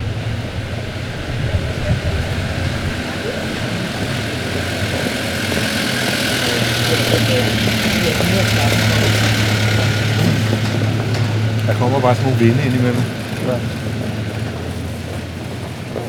How many people are speaking?
two